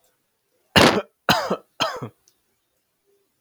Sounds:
Cough